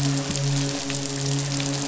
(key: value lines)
label: biophony, midshipman
recorder: SoundTrap 500